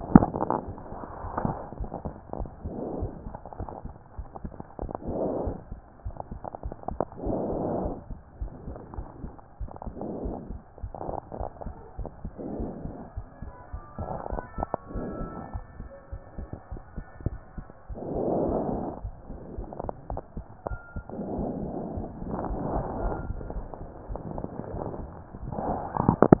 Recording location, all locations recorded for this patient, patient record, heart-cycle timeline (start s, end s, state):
aortic valve (AV)
aortic valve (AV)+pulmonary valve (PV)+tricuspid valve (TV)+mitral valve (MV)
#Age: Child
#Sex: Female
#Height: 113.0 cm
#Weight: 21.2 kg
#Pregnancy status: False
#Murmur: Absent
#Murmur locations: nan
#Most audible location: nan
#Systolic murmur timing: nan
#Systolic murmur shape: nan
#Systolic murmur grading: nan
#Systolic murmur pitch: nan
#Systolic murmur quality: nan
#Diastolic murmur timing: nan
#Diastolic murmur shape: nan
#Diastolic murmur grading: nan
#Diastolic murmur pitch: nan
#Diastolic murmur quality: nan
#Outcome: Abnormal
#Campaign: 2014 screening campaign
0.00	7.80	unannotated
7.80	7.94	S1
7.94	8.10	systole
8.10	8.18	S2
8.18	8.40	diastole
8.40	8.52	S1
8.52	8.66	systole
8.66	8.76	S2
8.76	8.96	diastole
8.96	9.06	S1
9.06	9.22	systole
9.22	9.32	S2
9.32	9.62	diastole
9.62	9.70	S1
9.70	9.86	systole
9.86	9.92	S2
9.92	10.22	diastole
10.22	10.36	S1
10.36	10.50	systole
10.50	10.60	S2
10.60	10.82	diastole
10.82	10.92	S1
10.92	11.06	systole
11.06	11.16	S2
11.16	11.38	diastole
11.38	11.48	S1
11.48	11.64	systole
11.64	11.74	S2
11.74	11.98	diastole
11.98	12.08	S1
12.08	12.24	systole
12.24	12.32	S2
12.32	12.58	diastole
12.58	12.70	S1
12.70	12.84	systole
12.84	12.94	S2
12.94	13.16	diastole
13.16	13.26	S1
13.26	13.42	systole
13.42	13.52	S2
13.52	13.74	diastole
13.74	13.82	S1
13.82	13.98	systole
13.98	14.08	S2
14.08	14.30	diastole
14.30	14.42	S1
14.42	14.58	systole
14.58	14.68	S2
14.68	14.94	diastole
14.94	15.08	S1
15.08	15.20	systole
15.20	15.30	S2
15.30	15.54	diastole
15.54	15.64	S1
15.64	15.78	systole
15.78	15.88	S2
15.88	16.12	diastole
16.12	16.20	S1
16.20	16.38	systole
16.38	16.48	S2
16.48	16.72	diastole
16.72	16.82	S1
16.82	16.96	systole
16.96	17.04	S2
17.04	26.40	unannotated